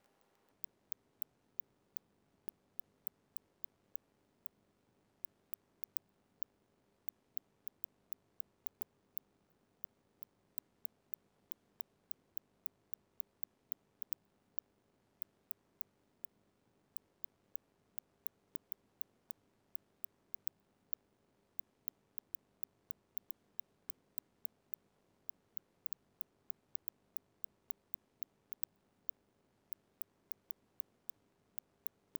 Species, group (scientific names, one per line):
Cyrtaspis scutata
Orthoptera